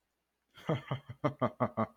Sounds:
Laughter